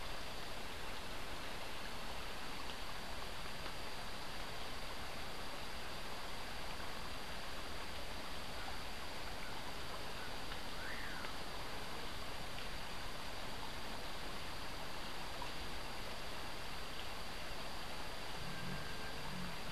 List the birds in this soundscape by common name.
Common Pauraque